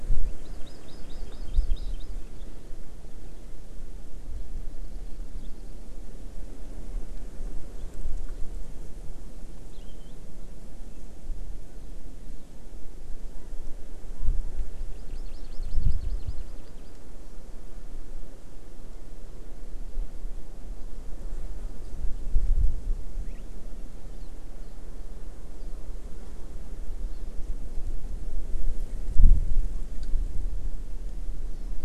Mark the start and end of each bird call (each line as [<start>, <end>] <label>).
[0.41, 2.11] Hawaii Amakihi (Chlorodrepanis virens)
[9.71, 10.11] Palila (Loxioides bailleui)
[14.91, 16.91] Hawaii Amakihi (Chlorodrepanis virens)